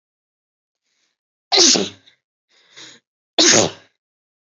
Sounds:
Sneeze